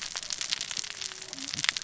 {"label": "biophony, cascading saw", "recorder": "SoundTrap 600 or HydroMoth"}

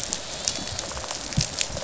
{"label": "biophony, rattle response", "recorder": "SoundTrap 500"}
{"label": "biophony, dolphin", "recorder": "SoundTrap 500"}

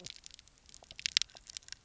{"label": "biophony, knock croak", "recorder": "SoundTrap 300"}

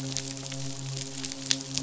{"label": "biophony, midshipman", "recorder": "SoundTrap 500"}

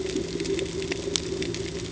{"label": "ambient", "recorder": "HydroMoth"}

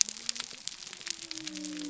{"label": "biophony", "recorder": "SoundTrap 300"}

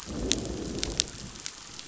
{"label": "biophony, growl", "recorder": "SoundTrap 500"}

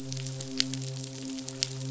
{"label": "biophony, midshipman", "recorder": "SoundTrap 500"}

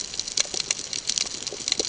{"label": "ambient", "recorder": "HydroMoth"}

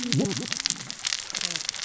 {"label": "biophony, cascading saw", "recorder": "SoundTrap 600 or HydroMoth"}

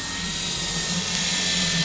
{"label": "anthrophony, boat engine", "recorder": "SoundTrap 500"}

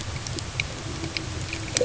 {"label": "ambient", "recorder": "HydroMoth"}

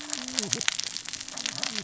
{"label": "biophony, cascading saw", "recorder": "SoundTrap 600 or HydroMoth"}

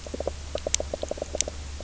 {"label": "biophony, knock croak", "recorder": "SoundTrap 300"}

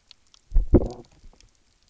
{"label": "biophony, low growl", "recorder": "SoundTrap 300"}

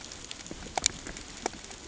{"label": "ambient", "recorder": "HydroMoth"}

